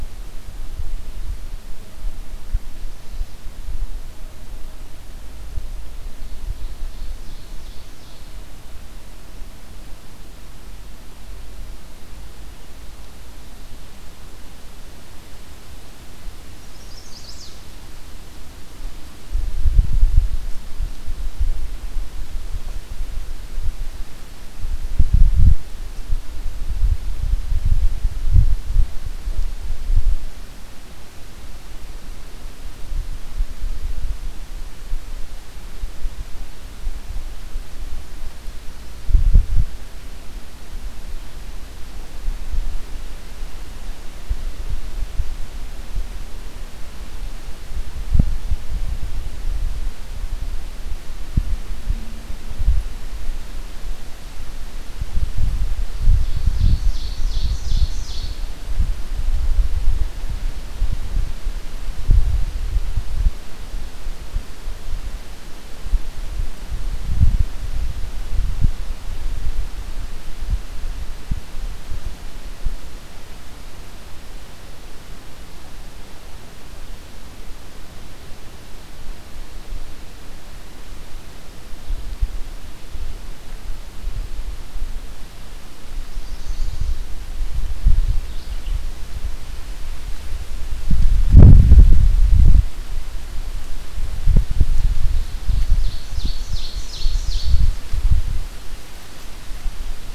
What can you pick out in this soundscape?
Chestnut-sided Warbler, Ovenbird, Mourning Warbler